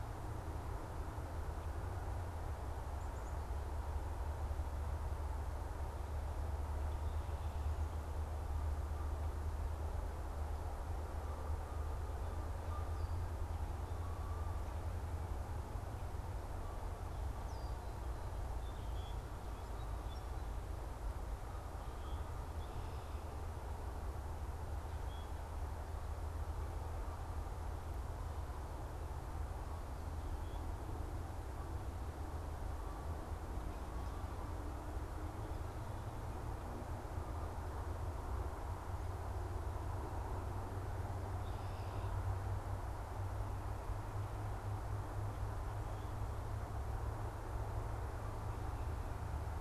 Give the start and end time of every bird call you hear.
17.4s-17.8s: Red-winged Blackbird (Agelaius phoeniceus)
18.6s-19.4s: Common Grackle (Quiscalus quiscula)
19.8s-20.3s: Common Grackle (Quiscalus quiscula)
22.0s-22.3s: Common Grackle (Quiscalus quiscula)

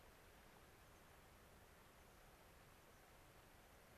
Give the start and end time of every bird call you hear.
0.8s-1.1s: American Pipit (Anthus rubescens)

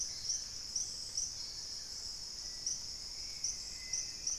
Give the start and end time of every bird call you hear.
0.0s-2.1s: Long-billed Woodcreeper (Nasica longirostris)
0.0s-4.4s: Dusky-capped Greenlet (Pachysylvia hypoxantha)
0.0s-4.4s: Hauxwell's Thrush (Turdus hauxwelli)

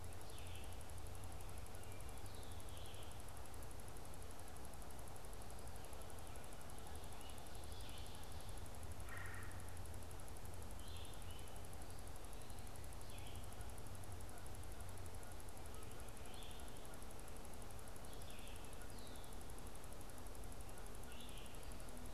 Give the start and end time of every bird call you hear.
0.0s-22.1s: Red-eyed Vireo (Vireo olivaceus)
8.9s-9.7s: Red-bellied Woodpecker (Melanerpes carolinus)

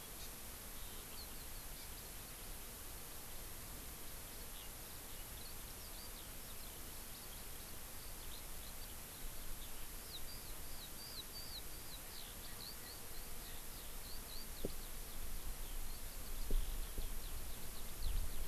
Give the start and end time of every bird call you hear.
0.0s-2.5s: Eurasian Skylark (Alauda arvensis)
0.2s-0.3s: Hawaii Amakihi (Chlorodrepanis virens)
4.1s-18.5s: Eurasian Skylark (Alauda arvensis)

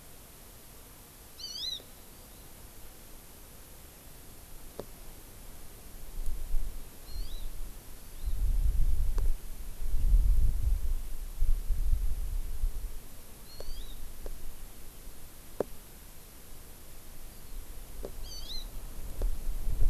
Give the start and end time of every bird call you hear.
1.3s-1.8s: Hawaii Amakihi (Chlorodrepanis virens)
2.1s-2.4s: Hawaii Amakihi (Chlorodrepanis virens)
7.0s-7.4s: Hawaii Amakihi (Chlorodrepanis virens)
7.9s-8.3s: Hawaii Amakihi (Chlorodrepanis virens)
13.4s-14.0s: Hawaii Amakihi (Chlorodrepanis virens)
18.2s-18.7s: Hawaii Amakihi (Chlorodrepanis virens)

